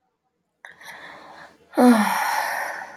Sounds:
Sigh